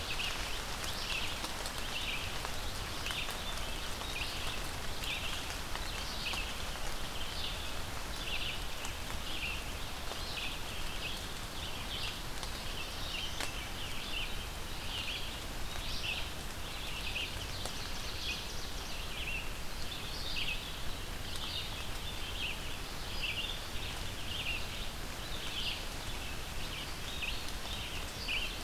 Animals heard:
Black-throated Blue Warbler (Setophaga caerulescens), Red-eyed Vireo (Vireo olivaceus), Ovenbird (Seiurus aurocapilla)

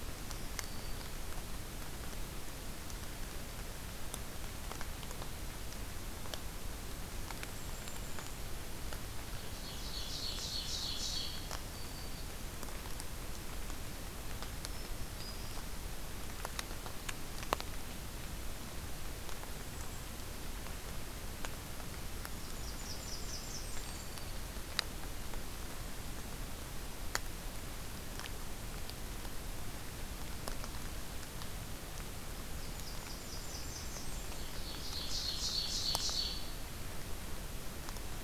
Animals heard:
Ovenbird (Seiurus aurocapilla), Golden-crowned Kinglet (Regulus satrapa), Black-throated Green Warbler (Setophaga virens), Blackburnian Warbler (Setophaga fusca)

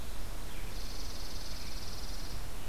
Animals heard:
Chipping Sparrow (Spizella passerina)

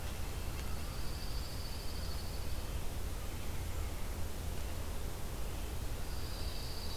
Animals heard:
Red-eyed Vireo (Vireo olivaceus), Winter Wren (Troglodytes hiemalis), Dark-eyed Junco (Junco hyemalis), Red-breasted Nuthatch (Sitta canadensis)

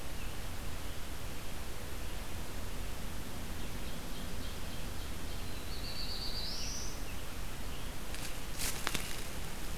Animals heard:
American Robin (Turdus migratorius), Ovenbird (Seiurus aurocapilla), Black-throated Blue Warbler (Setophaga caerulescens)

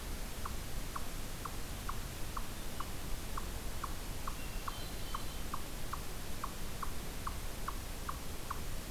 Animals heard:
Eastern Chipmunk (Tamias striatus), Hermit Thrush (Catharus guttatus)

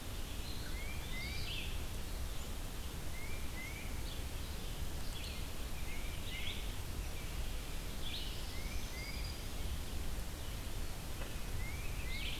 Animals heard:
Eastern Wood-Pewee (Contopus virens), Tufted Titmouse (Baeolophus bicolor), Black-throated Green Warbler (Setophaga virens), Red-eyed Vireo (Vireo olivaceus)

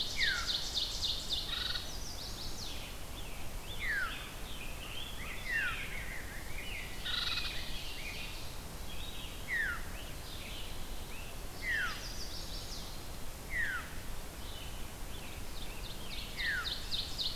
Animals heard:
Ovenbird (Seiurus aurocapilla), Chestnut-sided Warbler (Setophaga pensylvanica), Scarlet Tanager (Piranga olivacea), Red-eyed Vireo (Vireo olivaceus), Veery (Catharus fuscescens), Rose-breasted Grosbeak (Pheucticus ludovicianus)

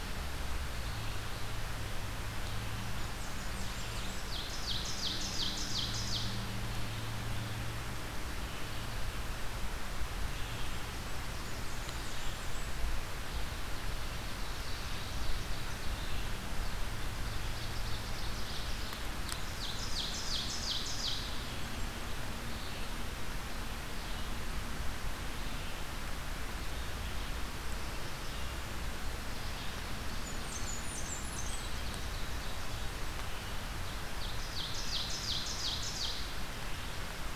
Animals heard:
Red-eyed Vireo (Vireo olivaceus), Blackburnian Warbler (Setophaga fusca), Ovenbird (Seiurus aurocapilla)

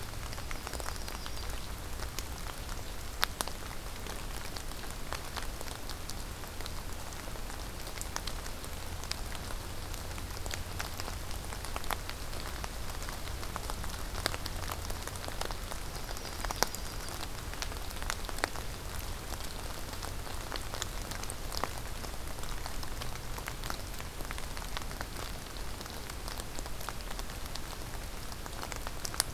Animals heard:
Golden-crowned Kinglet (Regulus satrapa), Yellow-rumped Warbler (Setophaga coronata)

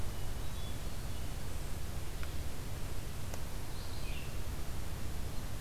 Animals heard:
Hermit Thrush (Catharus guttatus), Red-eyed Vireo (Vireo olivaceus)

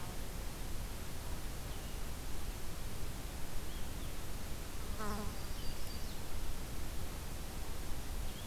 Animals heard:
Red-eyed Vireo (Vireo olivaceus), Yellow-rumped Warbler (Setophaga coronata)

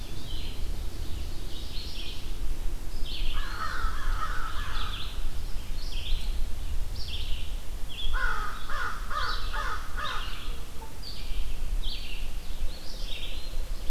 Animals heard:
Eastern Wood-Pewee (Contopus virens), American Crow (Corvus brachyrhynchos), Red-eyed Vireo (Vireo olivaceus), Ovenbird (Seiurus aurocapilla)

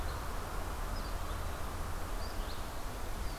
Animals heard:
Red-eyed Vireo (Vireo olivaceus)

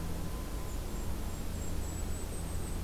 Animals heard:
Golden-crowned Kinglet (Regulus satrapa)

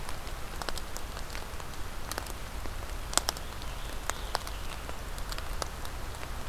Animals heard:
Scarlet Tanager (Piranga olivacea)

